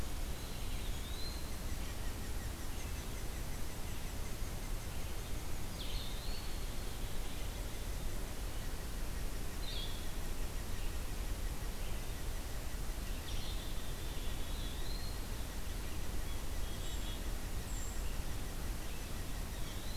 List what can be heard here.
unidentified call, Blue-headed Vireo, Eastern Wood-Pewee, Red-eyed Vireo, Black-capped Chickadee, Brown Creeper